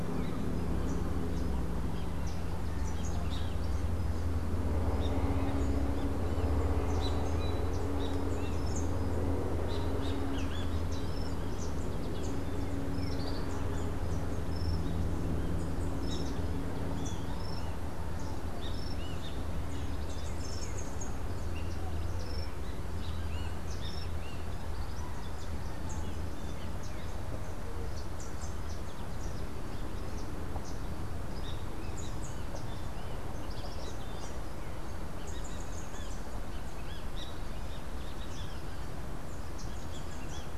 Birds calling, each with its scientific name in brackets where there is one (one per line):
Rufous-capped Warbler (Basileuterus rufifrons)
Great Kiskadee (Pitangus sulphuratus)